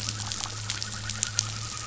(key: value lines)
label: anthrophony, boat engine
recorder: SoundTrap 500